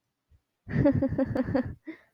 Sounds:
Laughter